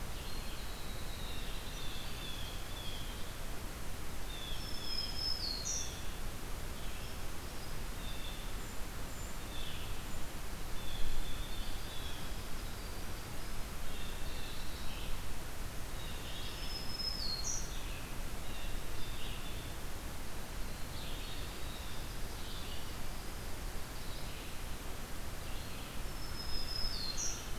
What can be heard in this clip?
Red-eyed Vireo, Winter Wren, Blue Jay, Black-throated Green Warbler, Brown Creeper